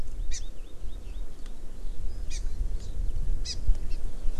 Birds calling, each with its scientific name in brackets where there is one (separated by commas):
Hawaii Amakihi (Chlorodrepanis virens), Eurasian Skylark (Alauda arvensis)